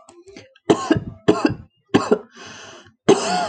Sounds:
Cough